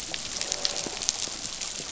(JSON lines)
{"label": "biophony, croak", "recorder": "SoundTrap 500"}